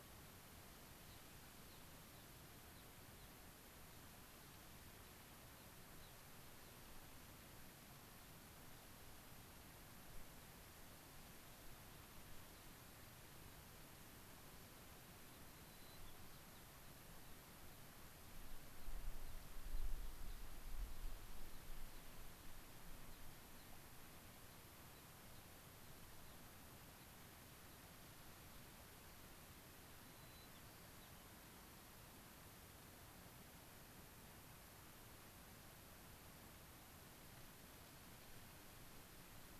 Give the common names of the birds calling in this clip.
Gray-crowned Rosy-Finch, White-crowned Sparrow